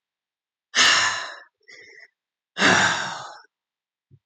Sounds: Sigh